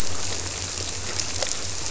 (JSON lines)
{"label": "biophony", "recorder": "SoundTrap 300"}